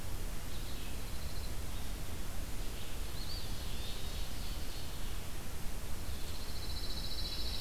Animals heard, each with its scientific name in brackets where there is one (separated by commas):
Ovenbird (Seiurus aurocapilla), Eastern Wood-Pewee (Contopus virens), Red-eyed Vireo (Vireo olivaceus), Pine Warbler (Setophaga pinus)